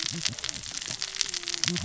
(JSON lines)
{"label": "biophony, cascading saw", "recorder": "SoundTrap 600 or HydroMoth"}